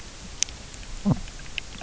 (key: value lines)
label: biophony
recorder: SoundTrap 300